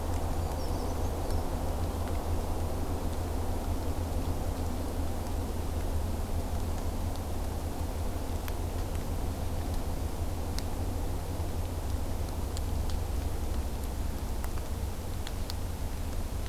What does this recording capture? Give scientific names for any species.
Certhia americana